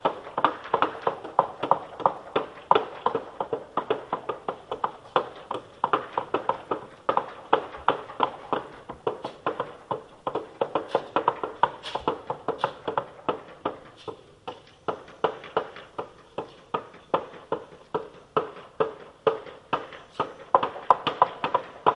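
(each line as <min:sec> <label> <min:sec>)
0:00.0 Hammering sounds during construction work. 0:21.9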